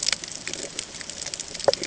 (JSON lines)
{"label": "ambient", "recorder": "HydroMoth"}